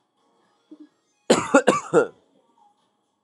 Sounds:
Cough